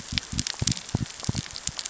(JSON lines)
{"label": "biophony", "recorder": "SoundTrap 600 or HydroMoth"}